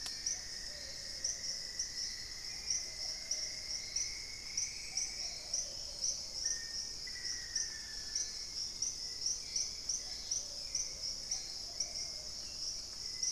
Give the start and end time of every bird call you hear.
[0.00, 5.66] Cinnamon-rumped Foliage-gleaner (Philydor pyrrhodes)
[0.00, 13.32] Hauxwell's Thrush (Turdus hauxwelli)
[0.00, 13.32] Plumbeous Pigeon (Patagioenas plumbea)
[5.36, 6.26] Dusky-capped Greenlet (Pachysylvia hypoxantha)
[6.26, 8.66] Black-faced Antthrush (Formicarius analis)
[9.66, 10.76] Dusky-capped Greenlet (Pachysylvia hypoxantha)

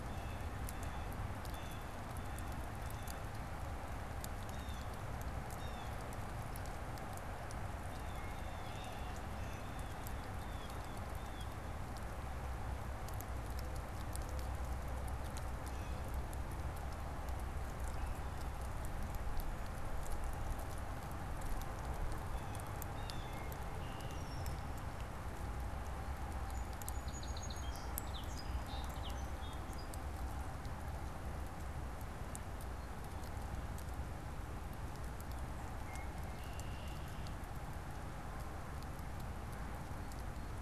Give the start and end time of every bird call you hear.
[0.00, 11.60] Blue Jay (Cyanocitta cristata)
[15.40, 16.20] Blue Jay (Cyanocitta cristata)
[22.10, 23.60] Blue Jay (Cyanocitta cristata)
[23.60, 25.00] Red-winged Blackbird (Agelaius phoeniceus)
[26.30, 30.40] Song Sparrow (Melospiza melodia)
[35.70, 37.50] Red-winged Blackbird (Agelaius phoeniceus)

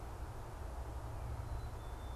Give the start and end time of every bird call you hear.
[1.39, 2.16] Black-capped Chickadee (Poecile atricapillus)

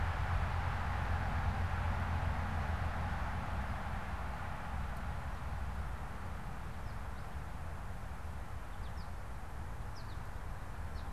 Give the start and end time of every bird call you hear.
[6.52, 11.12] American Goldfinch (Spinus tristis)

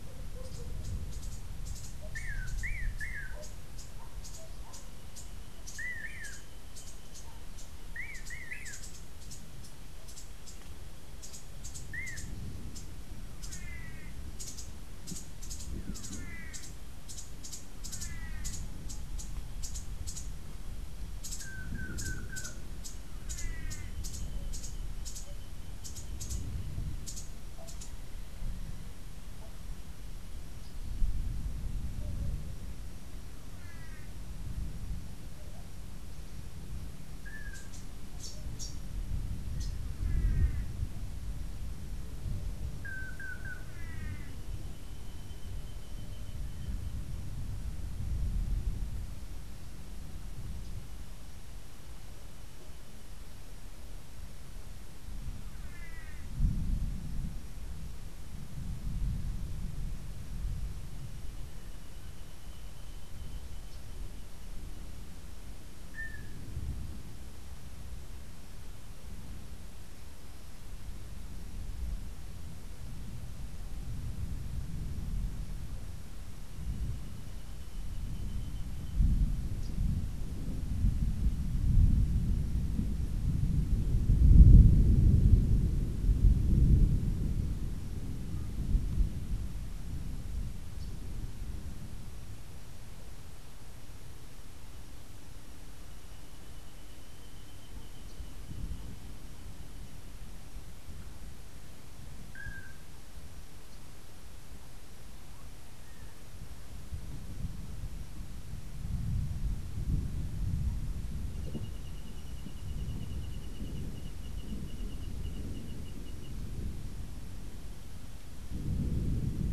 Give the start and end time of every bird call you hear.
[0.00, 23.98] Long-tailed Manakin (Chiroxiphia linearis)
[0.00, 28.28] Cabanis's Wren (Cantorchilus modestus)
[33.48, 34.28] Long-tailed Manakin (Chiroxiphia linearis)
[37.18, 40.18] Cabanis's Wren (Cantorchilus modestus)
[37.18, 40.88] Long-tailed Manakin (Chiroxiphia linearis)
[42.68, 44.58] Long-tailed Manakin (Chiroxiphia linearis)
[55.58, 56.38] Long-tailed Manakin (Chiroxiphia linearis)
[65.88, 66.38] Long-tailed Manakin (Chiroxiphia linearis)
[102.28, 102.88] Long-tailed Manakin (Chiroxiphia linearis)

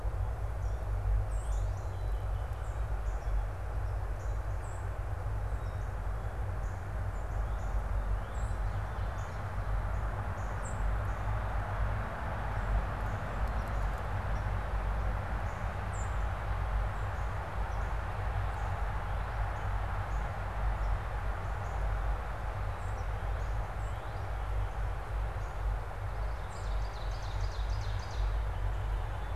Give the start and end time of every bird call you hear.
[0.00, 7.90] Northern Cardinal (Cardinalis cardinalis)
[4.60, 4.80] Song Sparrow (Melospiza melodia)
[8.30, 11.00] Song Sparrow (Melospiza melodia)
[13.30, 18.30] unidentified bird
[15.80, 16.10] Song Sparrow (Melospiza melodia)
[18.80, 22.10] Northern Cardinal (Cardinalis cardinalis)
[22.80, 25.00] Northern Cardinal (Cardinalis cardinalis)
[26.20, 28.40] Ovenbird (Seiurus aurocapilla)

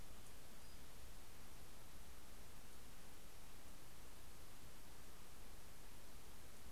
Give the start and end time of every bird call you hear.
[0.01, 2.21] Pacific-slope Flycatcher (Empidonax difficilis)

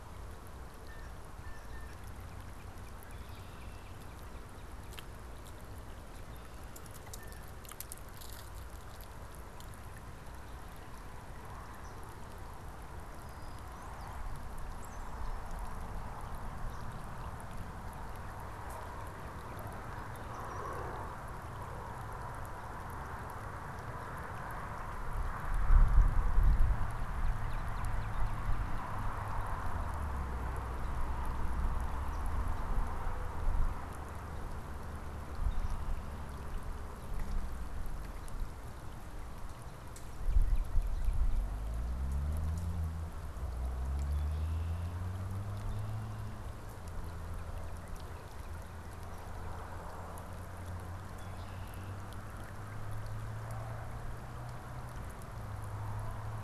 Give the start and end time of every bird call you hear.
[0.81, 2.01] Blue Jay (Cyanocitta cristata)
[2.11, 5.21] Northern Cardinal (Cardinalis cardinalis)
[3.01, 3.91] Red-winged Blackbird (Agelaius phoeniceus)
[6.91, 7.61] Blue Jay (Cyanocitta cristata)
[13.21, 15.61] Brown-headed Cowbird (Molothrus ater)
[20.21, 21.01] Brown-headed Cowbird (Molothrus ater)
[26.51, 29.11] Northern Cardinal (Cardinalis cardinalis)
[44.01, 45.01] Red-winged Blackbird (Agelaius phoeniceus)
[47.11, 49.51] Northern Cardinal (Cardinalis cardinalis)
[51.01, 52.01] Red-winged Blackbird (Agelaius phoeniceus)

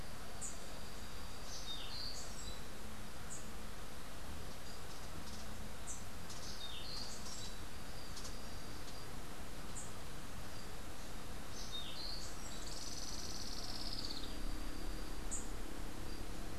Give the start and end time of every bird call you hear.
[0.26, 0.56] Rufous-capped Warbler (Basileuterus rufifrons)
[1.56, 2.36] Orange-billed Nightingale-Thrush (Catharus aurantiirostris)
[3.06, 3.36] Rufous-capped Warbler (Basileuterus rufifrons)
[5.76, 6.06] Rufous-capped Warbler (Basileuterus rufifrons)
[6.46, 7.26] Orange-billed Nightingale-Thrush (Catharus aurantiirostris)
[9.66, 9.96] Rufous-capped Warbler (Basileuterus rufifrons)
[11.56, 12.36] Orange-billed Nightingale-Thrush (Catharus aurantiirostris)
[12.46, 14.36] Olivaceous Woodcreeper (Sittasomus griseicapillus)
[15.26, 15.56] Rufous-capped Warbler (Basileuterus rufifrons)

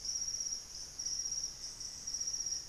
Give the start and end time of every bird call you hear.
[0.00, 2.69] White-throated Toucan (Ramphastos tucanus)
[0.77, 2.69] Black-faced Antthrush (Formicarius analis)

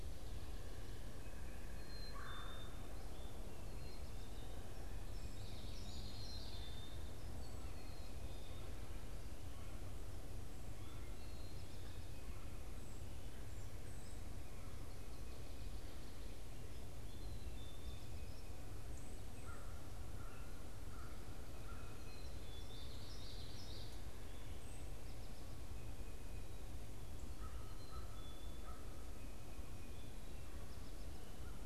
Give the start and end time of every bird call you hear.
[0.00, 12.31] Black-capped Chickadee (Poecile atricapillus)
[2.11, 2.71] Red-bellied Woodpecker (Melanerpes carolinus)
[5.41, 7.11] Common Yellowthroat (Geothlypis trichas)
[17.01, 18.31] Black-capped Chickadee (Poecile atricapillus)
[19.21, 22.11] American Crow (Corvus brachyrhynchos)
[22.01, 24.11] Common Yellowthroat (Geothlypis trichas)
[24.51, 25.11] unidentified bird
[27.21, 29.01] American Crow (Corvus brachyrhynchos)

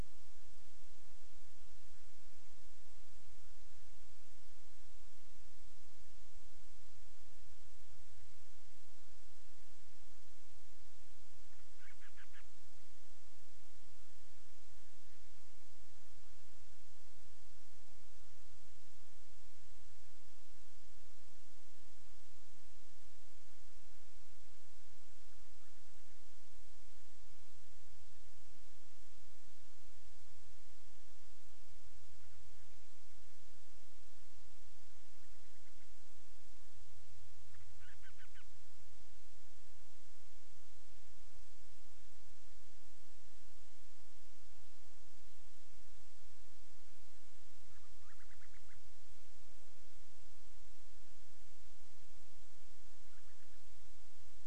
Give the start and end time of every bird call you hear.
[11.68, 12.58] Band-rumped Storm-Petrel (Hydrobates castro)
[37.78, 38.48] Band-rumped Storm-Petrel (Hydrobates castro)
[47.68, 48.88] Band-rumped Storm-Petrel (Hydrobates castro)
[52.98, 53.68] Band-rumped Storm-Petrel (Hydrobates castro)

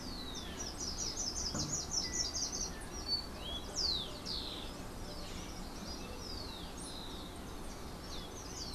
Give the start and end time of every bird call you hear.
[0.00, 2.86] Slate-throated Redstart (Myioborus miniatus)
[0.00, 3.06] Yellow-backed Oriole (Icterus chrysater)
[2.86, 8.74] Rufous-collared Sparrow (Zonotrichia capensis)

